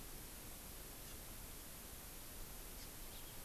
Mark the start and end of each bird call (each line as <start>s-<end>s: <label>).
1.0s-1.2s: Hawaii Amakihi (Chlorodrepanis virens)
2.7s-2.9s: Hawaii Amakihi (Chlorodrepanis virens)